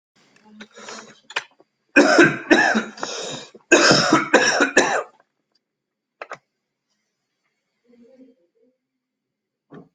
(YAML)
expert_labels:
- quality: good
  cough_type: dry
  dyspnea: false
  wheezing: false
  stridor: false
  choking: false
  congestion: false
  nothing: true
  diagnosis: COVID-19
  severity: unknown
age: 32
gender: male
respiratory_condition: false
fever_muscle_pain: false
status: symptomatic